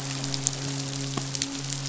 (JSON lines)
{"label": "biophony, midshipman", "recorder": "SoundTrap 500"}